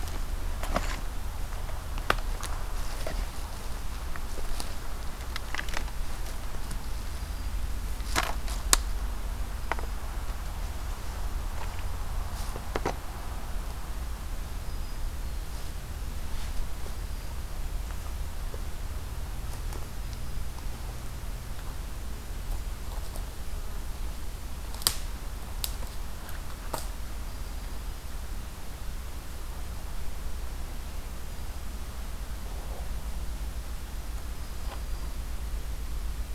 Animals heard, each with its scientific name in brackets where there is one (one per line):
Golden-crowned Kinglet (Regulus satrapa)
Black-throated Green Warbler (Setophaga virens)